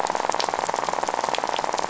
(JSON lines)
{"label": "biophony, rattle", "recorder": "SoundTrap 500"}